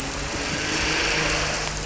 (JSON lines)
{"label": "anthrophony, boat engine", "recorder": "SoundTrap 300"}